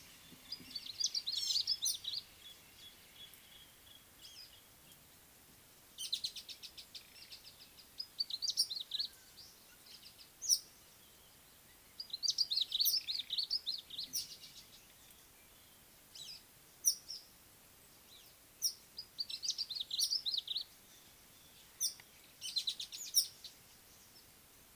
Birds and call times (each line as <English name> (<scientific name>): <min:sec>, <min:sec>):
Red-faced Crombec (Sylvietta whytii): 0:01.0, 0:08.3, 0:12.5, 0:19.6
Gray-backed Camaroptera (Camaroptera brevicaudata): 0:01.4
Nubian Woodpecker (Campethera nubica): 0:02.5
Speckled Mousebird (Colius striatus): 0:06.4, 0:22.7
Red-headed Weaver (Anaplectes rubriceps): 0:10.5, 0:18.6, 0:21.8